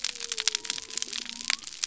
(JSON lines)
{"label": "biophony", "recorder": "SoundTrap 300"}